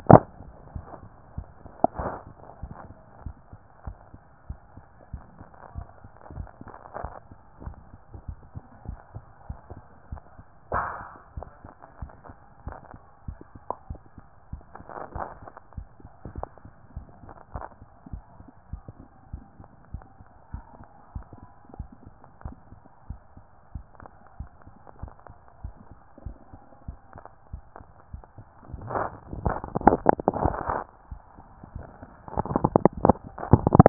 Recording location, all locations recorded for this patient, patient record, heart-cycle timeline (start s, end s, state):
mitral valve (MV)
aortic valve (AV)+pulmonary valve (PV)+tricuspid valve (TV)+mitral valve (MV)
#Age: Child
#Sex: Male
#Height: 148.0 cm
#Weight: 54.7 kg
#Pregnancy status: False
#Murmur: Absent
#Murmur locations: nan
#Most audible location: nan
#Systolic murmur timing: nan
#Systolic murmur shape: nan
#Systolic murmur grading: nan
#Systolic murmur pitch: nan
#Systolic murmur quality: nan
#Diastolic murmur timing: nan
#Diastolic murmur shape: nan
#Diastolic murmur grading: nan
#Diastolic murmur pitch: nan
#Diastolic murmur quality: nan
#Outcome: Abnormal
#Campaign: 2014 screening campaign
0.00	15.26	unannotated
15.26	15.42	systole
15.42	15.52	S2
15.52	15.76	diastole
15.76	15.88	S1
15.88	16.02	systole
16.02	16.10	S2
16.10	16.34	diastole
16.34	16.46	S1
16.46	16.64	systole
16.64	16.72	S2
16.72	16.94	diastole
16.94	17.06	S1
17.06	17.24	systole
17.24	17.34	S2
17.34	17.54	diastole
17.54	17.64	S1
17.64	17.80	systole
17.80	17.90	S2
17.90	18.12	diastole
18.12	18.22	S1
18.22	18.40	systole
18.40	18.48	S2
18.48	18.72	diastole
18.72	18.82	S1
18.82	19.00	systole
19.00	19.08	S2
19.08	19.32	diastole
19.32	19.42	S1
19.42	19.60	systole
19.60	19.68	S2
19.68	19.92	diastole
19.92	20.04	S1
20.04	20.20	systole
20.20	20.30	S2
20.30	20.52	diastole
20.52	20.64	S1
20.64	20.78	systole
20.78	20.88	S2
20.88	21.14	diastole
21.14	21.26	S1
21.26	21.42	systole
21.42	21.52	S2
21.52	21.78	diastole
21.78	21.88	S1
21.88	22.04	systole
22.04	22.14	S2
22.14	22.44	diastole
22.44	22.56	S1
22.56	22.72	systole
22.72	22.82	S2
22.82	23.08	diastole
23.08	23.20	S1
23.20	23.38	systole
23.38	23.46	S2
23.46	23.74	diastole
23.74	23.84	S1
23.84	24.02	systole
24.02	24.12	S2
24.12	24.38	diastole
24.38	24.50	S1
24.50	24.68	systole
24.68	24.76	S2
24.76	25.00	diastole
25.00	25.12	S1
25.12	25.28	systole
25.28	25.38	S2
25.38	25.62	diastole
25.62	25.74	S1
25.74	25.90	systole
25.90	26.00	S2
26.00	26.24	diastole
26.24	26.36	S1
26.36	26.54	systole
26.54	26.62	S2
26.62	26.86	diastole
26.86	26.98	S1
26.98	27.16	systole
27.16	27.24	S2
27.24	27.37	diastole
27.37	33.89	unannotated